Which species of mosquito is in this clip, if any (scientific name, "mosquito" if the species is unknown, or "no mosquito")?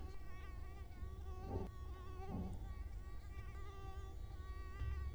Culex quinquefasciatus